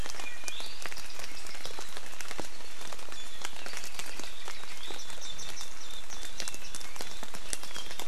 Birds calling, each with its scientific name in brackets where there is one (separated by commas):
Warbling White-eye (Zosterops japonicus), Iiwi (Drepanis coccinea), Apapane (Himatione sanguinea)